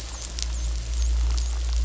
{"label": "biophony, dolphin", "recorder": "SoundTrap 500"}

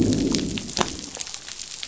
{"label": "biophony, growl", "recorder": "SoundTrap 500"}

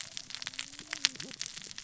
{"label": "biophony, cascading saw", "recorder": "SoundTrap 600 or HydroMoth"}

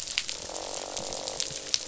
{"label": "biophony, croak", "recorder": "SoundTrap 500"}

